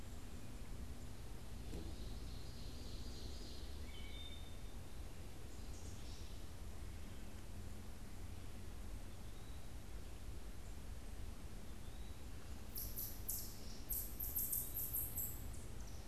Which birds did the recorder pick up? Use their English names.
Ovenbird, Wood Thrush, Eastern Wood-Pewee